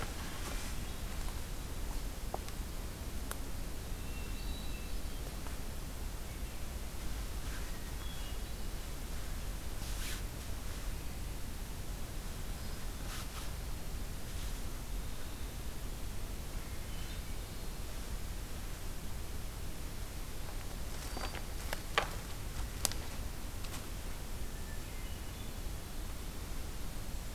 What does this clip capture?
Hermit Thrush